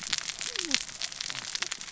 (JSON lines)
{"label": "biophony, cascading saw", "recorder": "SoundTrap 600 or HydroMoth"}